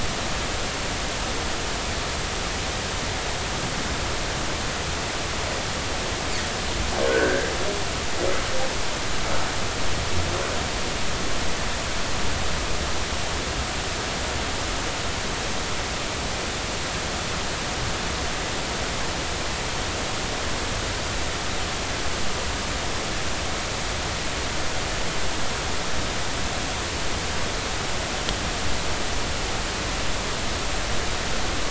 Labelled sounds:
7.1	7.5	humpback whale, 1.4 to 1.7 kHz

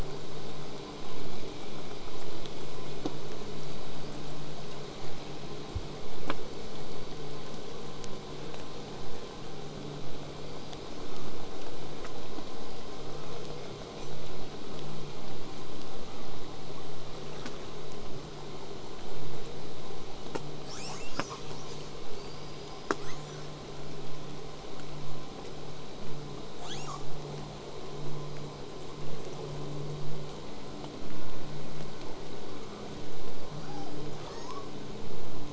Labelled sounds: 4.0	7.9	killer whale, southern resident, 6.7 to 8.0 kHz
10.3	11.3	killer whale, southern resident, L pod, call S19, 0.57 to 8.0 kHz
12.4	13.6	killer whale, southern resident, L pod, call S19, 0.76 to 8.0 kHz
15.2	16.3	killer whale, southern resident, L pod, call S19, 0.92 to 8.0 kHz
20.7	21.9	killer whale, southern resident, 0.31 to 8.0 kHz
22.1	23.5	killer whale, southern resident, L pod, call S19, 1.0 to 8.0 kHz
33.6	34.8	killer whale, southern resident, 0.35 to 8.0 kHz

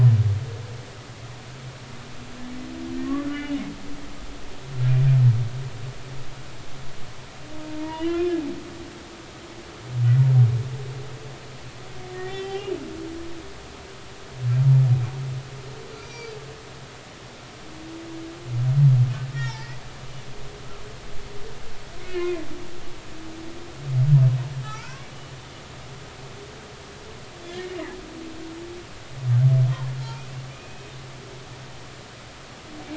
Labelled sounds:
3.2	3.6	humpback whale, 1.4 to 3.0 kHz
7.8	8.3	humpback whale, 1.6 to 3.1 kHz
8.8	9.3	humpback whale, 0.90 to 1.1 kHz
12.1	12.7	humpback whale, 0.80 to 3.3 kHz
15.9	16.3	humpback whale, 2.2 to 6.3 kHz
19.3	19.8	humpback whale, 1.7 to 5.7 kHz
22.0	22.5	humpback whale, 2.0 to 4.8 kHz
24.6	25.1	humpback whale, 0.80 to 1.6 kHz
27.5	27.8	humpback whale, 1.7 to 2.3 kHz
30.0	30.9	humpback whale, 1.3 to 2.8 kHz

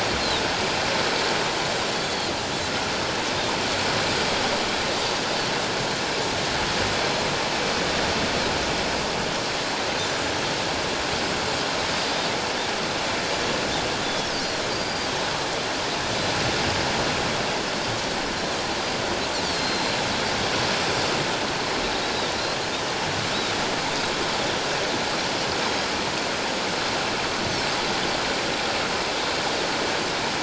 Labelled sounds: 1.7	2.3	Pacific white-sided dolphin, 3.2 to 7.4 kHz
14.0	14.3	Pacific white-sided dolphin, 3.3 to 3.6 kHz
14.7	15.1	Pacific white-sided dolphin, 4.6 to 4.8 kHz
19.4	19.9	Pacific white-sided dolphin, 4.1 to 4.8 kHz

